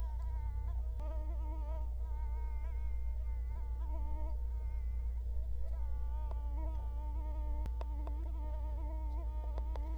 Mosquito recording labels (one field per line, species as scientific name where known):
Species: Culex quinquefasciatus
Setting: cup